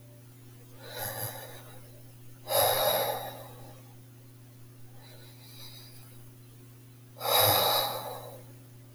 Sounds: Sigh